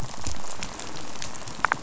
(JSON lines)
{"label": "biophony, rattle", "recorder": "SoundTrap 500"}